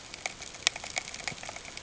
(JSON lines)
{"label": "ambient", "recorder": "HydroMoth"}